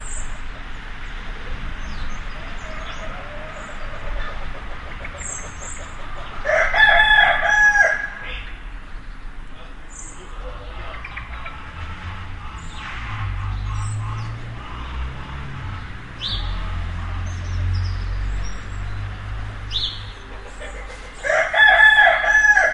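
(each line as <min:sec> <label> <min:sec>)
0:01.5 Birds are singing in the distance. 0:05.0
0:05.2 A bird chirps loudly. 0:06.2
0:06.3 A rooster crows loudly. 0:08.2
0:09.9 A bird chirps loudly. 0:10.5
0:10.6 Birds are singing in the distance. 0:14.7
0:16.2 A bird chirps loudly once. 0:16.7
0:19.6 A bird chirps loudly once. 0:20.1
0:21.1 A rooster crows loudly. 0:22.7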